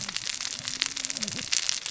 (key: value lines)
label: biophony, cascading saw
recorder: SoundTrap 600 or HydroMoth